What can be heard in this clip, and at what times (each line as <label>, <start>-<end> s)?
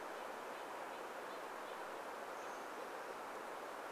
Red-breasted Nuthatch song, 0-2 s
Chestnut-backed Chickadee call, 2-4 s